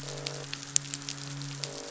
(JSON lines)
{"label": "biophony, croak", "recorder": "SoundTrap 500"}
{"label": "biophony, midshipman", "recorder": "SoundTrap 500"}